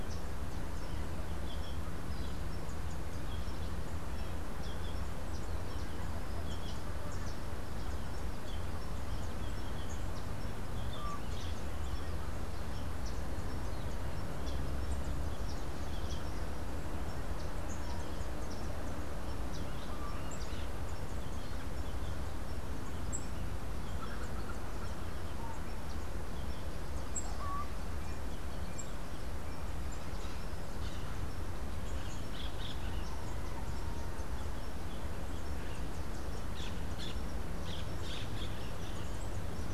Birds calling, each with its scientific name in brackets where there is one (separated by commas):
Yellow-throated Euphonia (Euphonia hirundinacea), Orange-fronted Parakeet (Eupsittula canicularis), Laughing Falcon (Herpetotheres cachinnans), Rufous-capped Warbler (Basileuterus rufifrons)